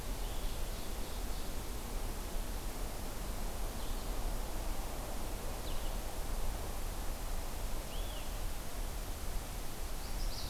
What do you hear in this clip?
Blue-headed Vireo, Ovenbird